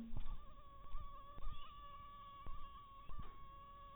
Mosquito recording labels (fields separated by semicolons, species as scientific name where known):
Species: mosquito; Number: one; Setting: cup